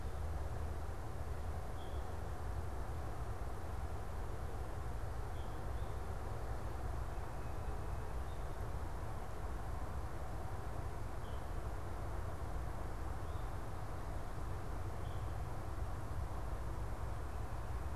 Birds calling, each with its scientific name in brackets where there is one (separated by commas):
unidentified bird, Tufted Titmouse (Baeolophus bicolor)